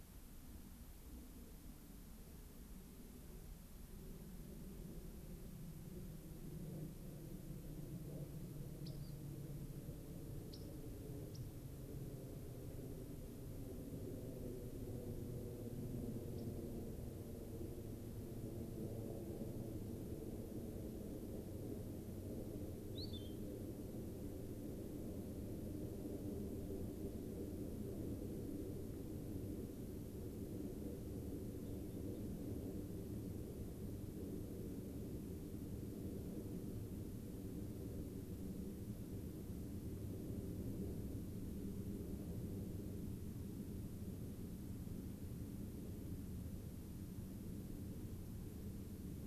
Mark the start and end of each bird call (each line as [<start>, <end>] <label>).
[8.82, 9.12] Rock Wren (Salpinctes obsoletus)
[10.52, 10.72] Rock Wren (Salpinctes obsoletus)
[11.32, 11.42] Rock Wren (Salpinctes obsoletus)
[16.32, 16.52] Rock Wren (Salpinctes obsoletus)
[22.92, 23.32] Spotted Sandpiper (Actitis macularius)